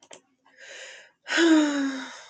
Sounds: Sigh